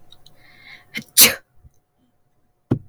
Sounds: Sneeze